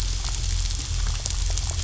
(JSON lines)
{"label": "anthrophony, boat engine", "recorder": "SoundTrap 500"}